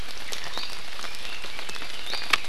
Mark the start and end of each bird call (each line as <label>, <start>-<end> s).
Iiwi (Drepanis coccinea), 0.5-0.8 s
Red-billed Leiothrix (Leiothrix lutea), 1.0-2.5 s
Iiwi (Drepanis coccinea), 2.0-2.3 s